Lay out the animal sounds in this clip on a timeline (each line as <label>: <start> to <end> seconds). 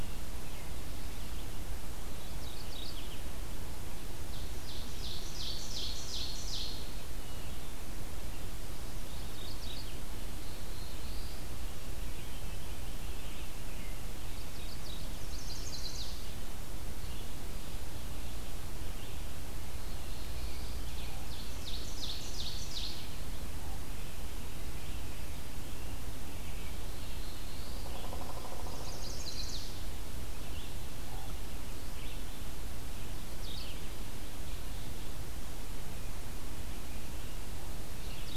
Mourning Warbler (Geothlypis philadelphia): 1.9 to 3.3 seconds
Ovenbird (Seiurus aurocapilla): 4.1 to 7.0 seconds
Mourning Warbler (Geothlypis philadelphia): 8.9 to 10.1 seconds
Black-throated Blue Warbler (Setophaga caerulescens): 10.3 to 11.6 seconds
Mourning Warbler (Geothlypis philadelphia): 14.1 to 15.2 seconds
Chestnut-sided Warbler (Setophaga pensylvanica): 15.1 to 16.3 seconds
Red-eyed Vireo (Vireo olivaceus): 16.9 to 38.4 seconds
Black-throated Blue Warbler (Setophaga caerulescens): 19.6 to 20.9 seconds
Ovenbird (Seiurus aurocapilla): 20.8 to 23.1 seconds
Black-throated Blue Warbler (Setophaga caerulescens): 26.5 to 28.0 seconds
Chestnut-sided Warbler (Setophaga pensylvanica): 28.6 to 29.9 seconds
Mourning Warbler (Geothlypis philadelphia): 33.2 to 33.9 seconds